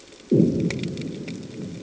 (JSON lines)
{"label": "anthrophony, bomb", "recorder": "HydroMoth"}